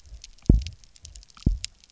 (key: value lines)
label: biophony, double pulse
recorder: SoundTrap 300